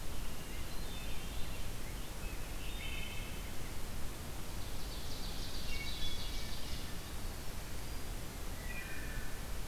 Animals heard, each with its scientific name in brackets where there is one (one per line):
Rose-breasted Grosbeak (Pheucticus ludovicianus)
Hermit Thrush (Catharus guttatus)
Ovenbird (Seiurus aurocapilla)
Wood Thrush (Hylocichla mustelina)